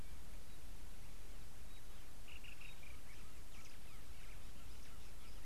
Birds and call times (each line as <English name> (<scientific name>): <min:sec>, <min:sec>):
Black-throated Barbet (Tricholaema melanocephala): 0:02.5